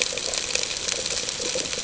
{"label": "ambient", "recorder": "HydroMoth"}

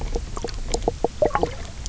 {"label": "biophony, knock croak", "recorder": "SoundTrap 300"}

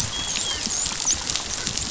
{"label": "biophony, dolphin", "recorder": "SoundTrap 500"}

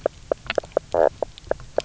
{"label": "biophony, knock croak", "recorder": "SoundTrap 300"}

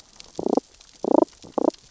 {"label": "biophony, damselfish", "recorder": "SoundTrap 600 or HydroMoth"}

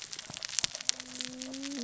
{"label": "biophony, cascading saw", "recorder": "SoundTrap 600 or HydroMoth"}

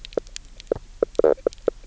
{"label": "biophony, knock croak", "recorder": "SoundTrap 300"}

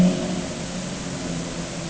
{"label": "anthrophony, boat engine", "recorder": "HydroMoth"}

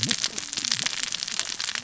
{"label": "biophony, cascading saw", "recorder": "SoundTrap 600 or HydroMoth"}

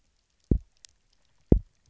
{"label": "biophony, double pulse", "recorder": "SoundTrap 300"}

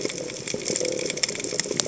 {"label": "biophony", "recorder": "HydroMoth"}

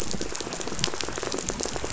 {"label": "biophony", "recorder": "SoundTrap 500"}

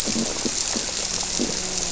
{"label": "biophony, grouper", "recorder": "SoundTrap 300"}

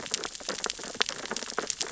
{"label": "biophony, sea urchins (Echinidae)", "recorder": "SoundTrap 600 or HydroMoth"}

